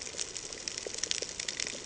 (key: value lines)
label: ambient
recorder: HydroMoth